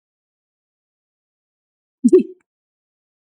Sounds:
Sneeze